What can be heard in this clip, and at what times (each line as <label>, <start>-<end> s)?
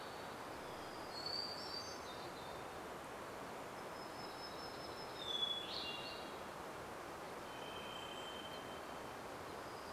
Golden-crowned Kinglet call, 0-2 s
Hermit Thrush song, 0-8 s
Hermit Warbler song, 2-6 s
Chestnut-backed Chickadee call, 4-6 s
Golden-crowned Kinglet call, 4-6 s
Varied Thrush song, 6-10 s
Bushtit call, 8-10 s
Golden-crowned Kinglet call, 8-10 s
warbler song, 8-10 s